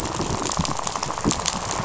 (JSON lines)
{"label": "biophony, rattle", "recorder": "SoundTrap 500"}